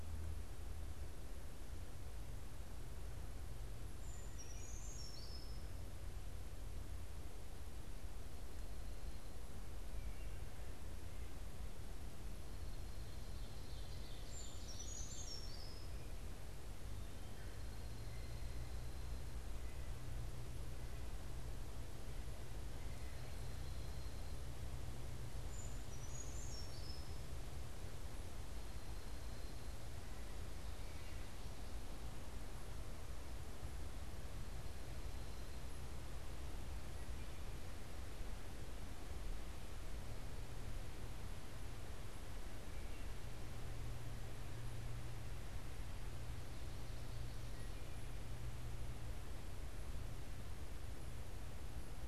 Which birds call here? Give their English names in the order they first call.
Brown Creeper, Wood Thrush, Dark-eyed Junco, Ovenbird